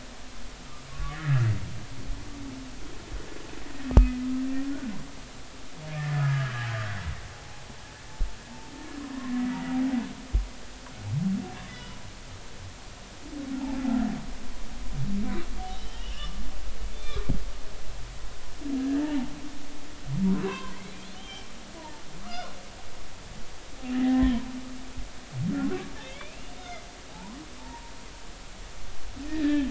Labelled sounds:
0.9	1.5	humpback whale, 1.1 to 2.0 kHz
3.9	4.2	humpback whale, 1.2 to 1.3 kHz
6.0	7.0	humpback whale, 1.2 to 3.1 kHz
11.7	12.0	humpback whale, 2.8 to 3.0 kHz
15.6	16.4	humpback whale, 1.1 to 3.4 kHz
16.9	17.3	humpback whale, 0.99 to 3.6 kHz
18.8	19.3	humpback whale, 0.80 to 1.9 kHz
20.4	20.8	humpback whale, 0.96 to 2.8 kHz
21.1	22.5	humpback whale, 0.83 to 3.3 kHz
23.9	24.4	humpback whale, 1.6 to 2.1 kHz
26.0	27.9	humpback whale, 0.80 to 3.7 kHz
29.3	29.6	humpback whale, 1.7 to 3.9 kHz

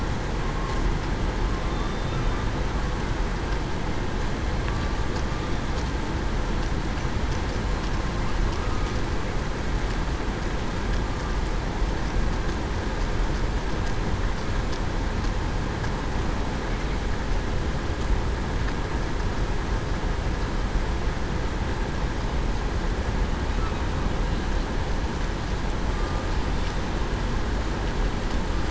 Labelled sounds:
1.7	2.2	killer whale, southern resident, 3.6 to 3.7 kHz

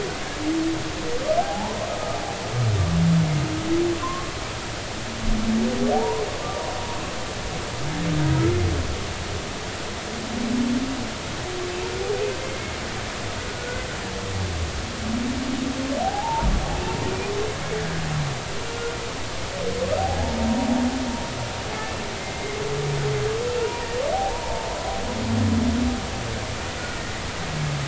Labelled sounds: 1.4	1.8	humpback whale, 0.80 to 1.1 kHz
4.0	4.3	humpback whale, 0.96 to 1.2 kHz
5.9	6.2	humpback whale, 0.80 to 1.1 kHz
13.5	13.8	humpback whale, 1.4 to 1.6 kHz
16.0	17.3	humpback whale, 0.80 to 2.5 kHz
20.0	20.4	humpback whale, 0.80 to 0.96 kHz
22.2	22.5	humpback whale, 2.0 to 2.2 kHz
23.6	23.9	humpback whale, 0.86 to 1.0 kHz
24.1	24.7	humpback whale, 0.80 to 1.0 kHz

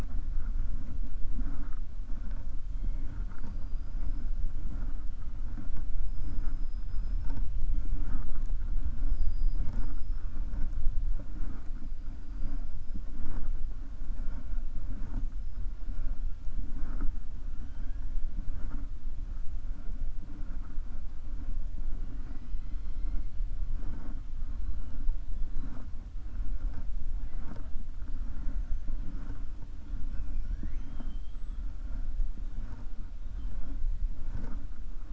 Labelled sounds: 17.6	18.0	killer whale, 1.5 to 3.7 kHz

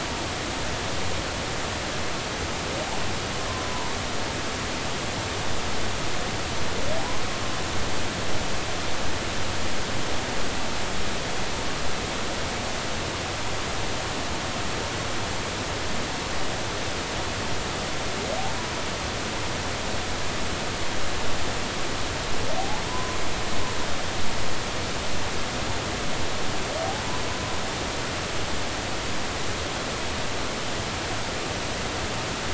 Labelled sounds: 3.7	3.9	humpback whale, 0.90 to 1.0 kHz
22.6	23.2	humpback whale, 0.80 to 1.1 kHz

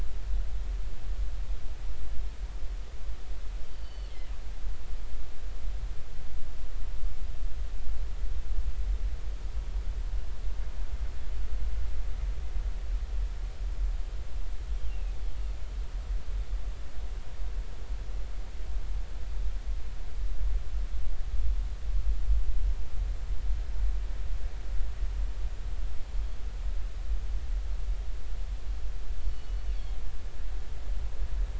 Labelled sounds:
3.6	4.1	killer whale, northern resident, G clan, GG subclan, call N23ii, 2.8 to 4.7 kHz
14.9	15.2	killer whale, northern resident, G clan, GG subclan, 2.4 to 2.8 kHz
29.2	29.6	killer whale, northern resident, G clan, GG subclan, call N23ii, 2.9 to 4.6 kHz

